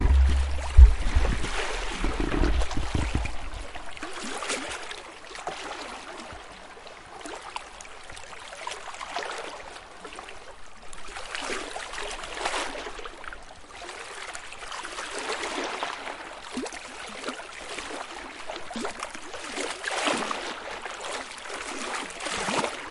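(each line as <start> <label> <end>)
0.0 Calm water continuously sloshes on the shore at unpredictable intervals. 22.9
0.0 A deep thumping noise. 1.7
2.2 A deep creaking sound. 4.0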